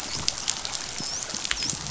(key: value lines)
label: biophony, dolphin
recorder: SoundTrap 500